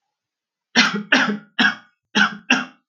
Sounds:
Cough